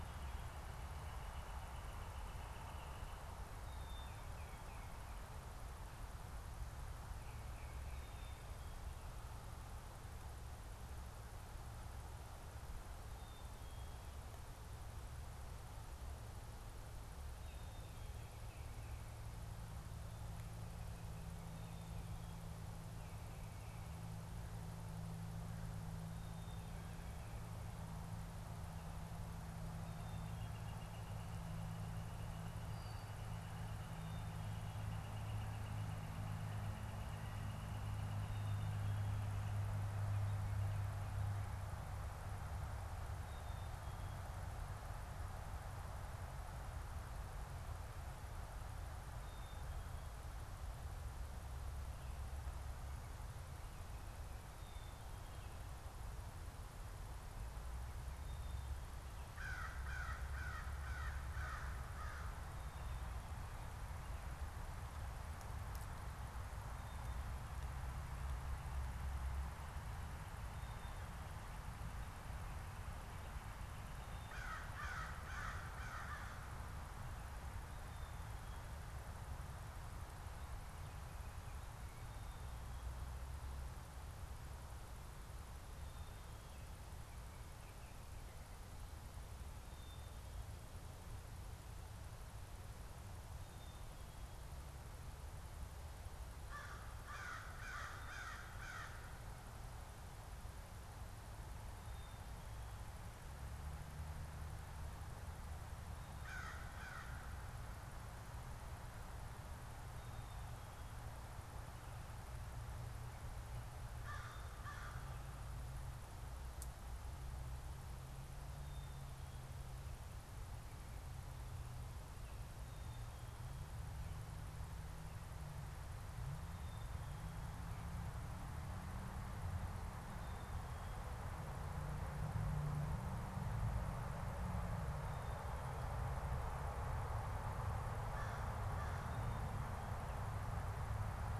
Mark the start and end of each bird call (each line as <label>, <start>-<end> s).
Northern Flicker (Colaptes auratus), 0.0-3.4 s
Tufted Titmouse (Baeolophus bicolor), 3.7-5.1 s
Tufted Titmouse (Baeolophus bicolor), 7.0-8.5 s
Black-capped Chickadee (Poecile atricapillus), 13.0-14.2 s
Tufted Titmouse (Baeolophus bicolor), 17.4-19.2 s
Black-capped Chickadee (Poecile atricapillus), 26.1-27.2 s
Northern Flicker (Colaptes auratus), 29.9-39.6 s
Brown-headed Cowbird (Molothrus ater), 32.7-33.2 s
Black-capped Chickadee (Poecile atricapillus), 43.1-44.3 s
Black-capped Chickadee (Poecile atricapillus), 48.9-50.3 s
Black-capped Chickadee (Poecile atricapillus), 54.4-55.8 s
Black-capped Chickadee (Poecile atricapillus), 58.0-59.2 s
American Crow (Corvus brachyrhynchos), 59.2-62.6 s
Black-capped Chickadee (Poecile atricapillus), 70.3-71.6 s
American Crow (Corvus brachyrhynchos), 74.0-76.7 s
Black-capped Chickadee (Poecile atricapillus), 89.5-90.7 s
Black-capped Chickadee (Poecile atricapillus), 93.5-94.5 s
American Crow (Corvus brachyrhynchos), 96.2-99.5 s
Black-capped Chickadee (Poecile atricapillus), 101.7-102.8 s
American Crow (Corvus brachyrhynchos), 106.0-107.5 s
American Crow (Corvus brachyrhynchos), 113.7-115.4 s
Black-capped Chickadee (Poecile atricapillus), 118.6-119.7 s
Black-capped Chickadee (Poecile atricapillus), 122.6-123.7 s
Black-capped Chickadee (Poecile atricapillus), 126.6-127.5 s
American Crow (Corvus brachyrhynchos), 137.8-139.3 s